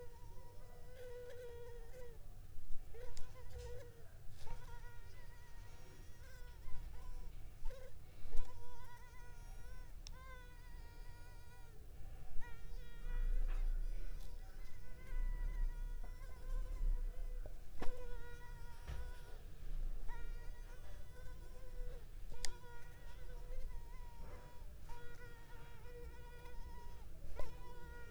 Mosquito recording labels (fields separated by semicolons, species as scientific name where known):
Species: Culex pipiens complex; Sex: female; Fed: unfed; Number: one; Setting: cup